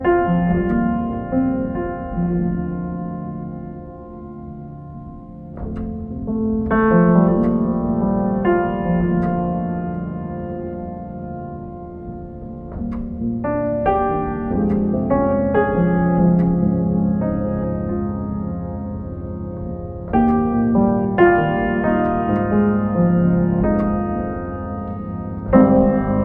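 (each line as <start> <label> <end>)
0.0 Calm piano music is playing in a large empty room. 3.8
0.1 Quiet echoing piano music. 26.2
6.1 Calm piano music is playing in a large empty room. 9.4
13.3 Calm piano music is playing in a large empty room. 18.9
20.1 Calm piano music is playing in a large empty room. 24.3
25.4 Calm piano music is playing in a large empty room. 26.2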